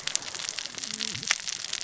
{"label": "biophony, cascading saw", "recorder": "SoundTrap 600 or HydroMoth"}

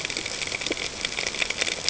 {"label": "ambient", "recorder": "HydroMoth"}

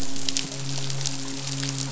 {"label": "biophony, midshipman", "recorder": "SoundTrap 500"}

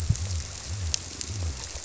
{"label": "biophony", "recorder": "SoundTrap 300"}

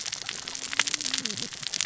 {"label": "biophony, cascading saw", "recorder": "SoundTrap 600 or HydroMoth"}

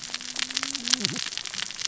{"label": "biophony, cascading saw", "recorder": "SoundTrap 600 or HydroMoth"}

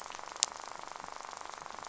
{"label": "biophony, rattle", "recorder": "SoundTrap 500"}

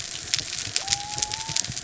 {"label": "biophony", "recorder": "SoundTrap 300"}
{"label": "anthrophony, mechanical", "recorder": "SoundTrap 300"}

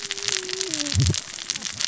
{"label": "biophony, cascading saw", "recorder": "SoundTrap 600 or HydroMoth"}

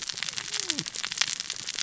{"label": "biophony, cascading saw", "recorder": "SoundTrap 600 or HydroMoth"}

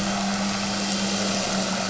{"label": "anthrophony, boat engine", "recorder": "SoundTrap 500"}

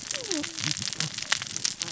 {"label": "biophony, cascading saw", "recorder": "SoundTrap 600 or HydroMoth"}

